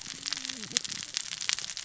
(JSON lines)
{"label": "biophony, cascading saw", "recorder": "SoundTrap 600 or HydroMoth"}